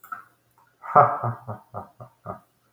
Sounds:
Laughter